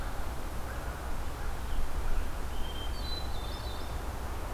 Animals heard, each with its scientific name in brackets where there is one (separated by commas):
Hermit Thrush (Catharus guttatus)